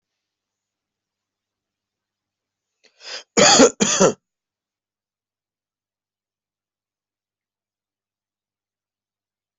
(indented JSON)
{
  "expert_labels": [
    {
      "quality": "ok",
      "cough_type": "dry",
      "dyspnea": false,
      "wheezing": false,
      "stridor": false,
      "choking": false,
      "congestion": false,
      "nothing": true,
      "diagnosis": "lower respiratory tract infection",
      "severity": "mild"
    }
  ],
  "age": 40,
  "gender": "male",
  "respiratory_condition": false,
  "fever_muscle_pain": false,
  "status": "healthy"
}